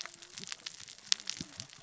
{"label": "biophony, cascading saw", "recorder": "SoundTrap 600 or HydroMoth"}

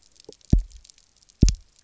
{"label": "biophony, double pulse", "recorder": "SoundTrap 300"}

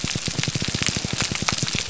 {"label": "biophony, pulse", "recorder": "SoundTrap 300"}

